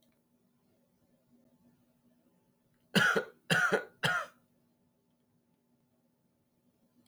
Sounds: Cough